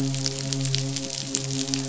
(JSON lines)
{"label": "biophony, midshipman", "recorder": "SoundTrap 500"}